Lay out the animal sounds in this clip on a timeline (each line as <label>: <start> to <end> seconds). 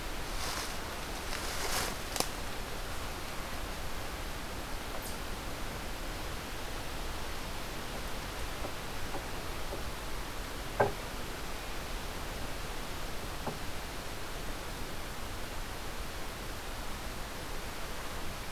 Eastern Chipmunk (Tamias striatus): 4.9 to 5.3 seconds